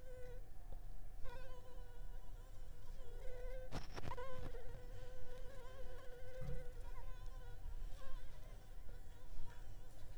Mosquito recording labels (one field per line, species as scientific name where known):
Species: Anopheles arabiensis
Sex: female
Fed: unfed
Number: one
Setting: cup